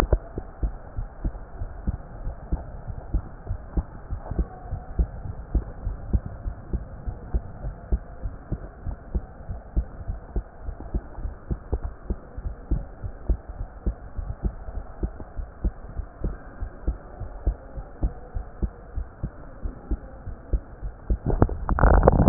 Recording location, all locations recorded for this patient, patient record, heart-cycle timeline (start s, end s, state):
pulmonary valve (PV)
aortic valve (AV)+pulmonary valve (PV)+tricuspid valve (TV)+mitral valve (MV)
#Age: Child
#Sex: Female
#Height: 135.0 cm
#Weight: 29.2 kg
#Pregnancy status: False
#Murmur: Absent
#Murmur locations: nan
#Most audible location: nan
#Systolic murmur timing: nan
#Systolic murmur shape: nan
#Systolic murmur grading: nan
#Systolic murmur pitch: nan
#Systolic murmur quality: nan
#Diastolic murmur timing: nan
#Diastolic murmur shape: nan
#Diastolic murmur grading: nan
#Diastolic murmur pitch: nan
#Diastolic murmur quality: nan
#Outcome: Abnormal
#Campaign: 2015 screening campaign
0.00	0.26	unannotated
0.26	0.36	diastole
0.36	0.44	S1
0.44	0.62	systole
0.62	0.74	S2
0.74	0.96	diastole
0.96	1.08	S1
1.08	1.22	systole
1.22	1.34	S2
1.34	1.58	diastole
1.58	1.72	S1
1.72	1.86	systole
1.86	1.98	S2
1.98	2.22	diastole
2.22	2.36	S1
2.36	2.50	systole
2.50	2.64	S2
2.64	2.86	diastole
2.86	2.96	S1
2.96	3.12	systole
3.12	3.26	S2
3.26	3.48	diastole
3.48	3.58	S1
3.58	3.72	systole
3.72	3.86	S2
3.86	4.10	diastole
4.10	4.22	S1
4.22	4.36	systole
4.36	4.48	S2
4.48	4.70	diastole
4.70	4.82	S1
4.82	4.96	systole
4.96	5.08	S2
5.08	5.26	diastole
5.26	5.36	S1
5.36	5.50	systole
5.50	5.64	S2
5.64	5.84	diastole
5.84	5.98	S1
5.98	6.08	systole
6.08	6.22	S2
6.22	6.44	diastole
6.44	6.58	S1
6.58	6.72	systole
6.72	6.86	S2
6.86	7.06	diastole
7.06	7.16	S1
7.16	7.32	systole
7.32	7.44	S2
7.44	7.64	diastole
7.64	7.76	S1
7.76	7.90	systole
7.90	8.02	S2
8.02	8.22	diastole
8.22	8.34	S1
8.34	8.50	systole
8.50	8.62	S2
8.62	8.86	diastole
8.86	8.98	S1
8.98	9.14	systole
9.14	9.26	S2
9.26	9.48	diastole
9.48	9.60	S1
9.60	9.76	systole
9.76	9.86	S2
9.86	10.08	diastole
10.08	10.20	S1
10.20	10.34	systole
10.34	10.46	S2
10.46	10.66	diastole
10.66	10.76	S1
10.76	10.92	systole
10.92	11.04	S2
11.04	11.22	diastole
11.22	11.34	S1
11.34	11.50	systole
11.50	11.60	S2
11.60	11.82	diastole
11.82	11.92	S1
11.92	12.06	systole
12.06	12.18	S2
12.18	12.42	diastole
12.42	12.56	S1
12.56	12.70	systole
12.70	12.84	S2
12.84	13.02	diastole
13.02	13.12	S1
13.12	13.26	systole
13.26	13.38	S2
13.38	13.58	diastole
13.58	13.68	S1
13.68	13.84	systole
13.84	13.96	S2
13.96	14.16	diastole
14.16	14.30	S1
14.30	14.44	systole
14.44	14.56	S2
14.56	14.74	diastole
14.74	14.84	S1
14.84	15.02	systole
15.02	15.14	S2
15.14	15.36	diastole
15.36	15.48	S1
15.48	15.62	systole
15.62	15.74	S2
15.74	15.96	diastole
15.96	16.06	S1
16.06	16.24	systole
16.24	16.38	S2
16.38	16.60	diastole
16.60	16.70	S1
16.70	16.86	systole
16.86	16.98	S2
16.98	17.20	diastole
17.20	17.28	S1
17.28	17.44	systole
17.44	17.54	S2
17.54	17.76	diastole
17.76	17.84	S1
17.84	18.02	systole
18.02	18.14	S2
18.14	18.36	diastole
18.36	18.48	S1
18.48	18.62	systole
18.62	18.74	S2
18.74	18.96	diastole
18.96	19.08	S1
19.08	19.24	systole
19.24	19.36	S2
19.36	19.62	diastole
19.62	19.72	S1
19.72	19.90	systole
19.90	20.00	S2
20.00	20.24	diastole
20.24	20.36	S1
20.36	20.52	systole
20.52	20.62	S2
20.62	20.84	diastole
20.84	20.94	S1
20.94	21.08	systole
21.08	21.18	S2
21.18	21.22	diastole
21.22	22.29	unannotated